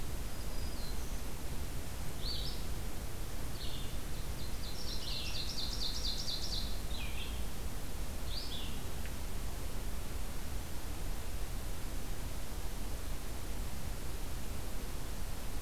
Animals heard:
Red-eyed Vireo (Vireo olivaceus), Ovenbird (Seiurus aurocapilla), Black-throated Green Warbler (Setophaga virens)

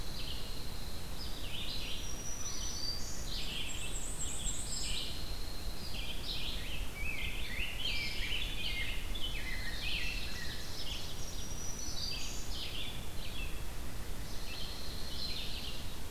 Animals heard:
Ovenbird (Seiurus aurocapilla), Black-and-white Warbler (Mniotilta varia), Dark-eyed Junco (Junco hyemalis), Rose-breasted Grosbeak (Pheucticus ludovicianus), Black-throated Green Warbler (Setophaga virens), Red-eyed Vireo (Vireo olivaceus)

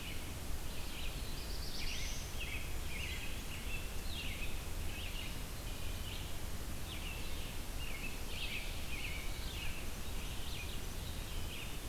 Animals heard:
Red-eyed Vireo (Vireo olivaceus), American Robin (Turdus migratorius), Black-throated Blue Warbler (Setophaga caerulescens)

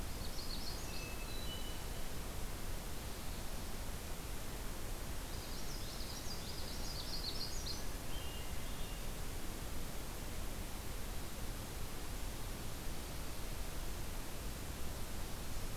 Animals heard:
Hermit Thrush (Catharus guttatus), Common Yellowthroat (Geothlypis trichas), Magnolia Warbler (Setophaga magnolia)

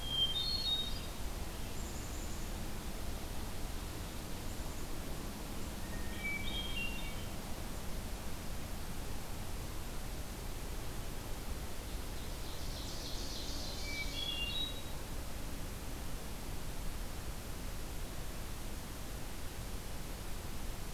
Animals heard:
Ovenbird (Seiurus aurocapilla), Hermit Thrush (Catharus guttatus), Black-capped Chickadee (Poecile atricapillus)

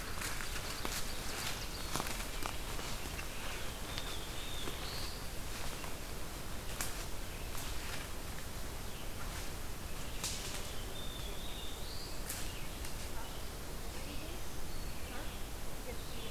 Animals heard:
Red-eyed Vireo (Vireo olivaceus), Ovenbird (Seiurus aurocapilla), Black-throated Blue Warbler (Setophaga caerulescens)

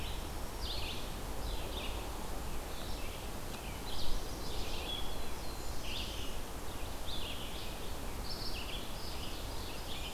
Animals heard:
Black-throated Blue Warbler (Setophaga caerulescens), Ovenbird (Seiurus aurocapilla), Red-eyed Vireo (Vireo olivaceus), Chestnut-sided Warbler (Setophaga pensylvanica)

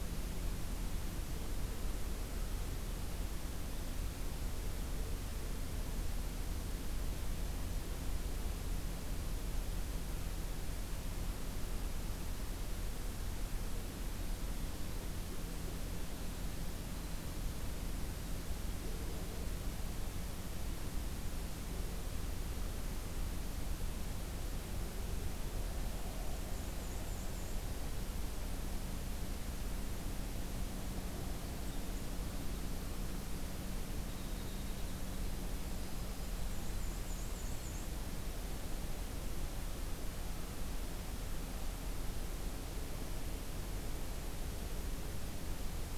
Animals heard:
Winter Wren (Troglodytes hiemalis), Black-and-white Warbler (Mniotilta varia)

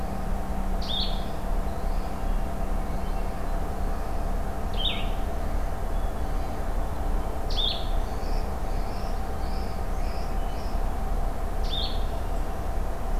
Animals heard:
unidentified call, Blue-headed Vireo (Vireo solitarius)

